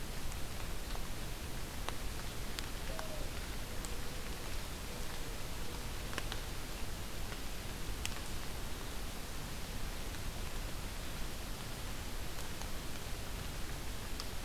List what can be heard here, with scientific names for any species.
forest ambience